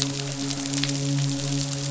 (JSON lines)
{"label": "biophony, midshipman", "recorder": "SoundTrap 500"}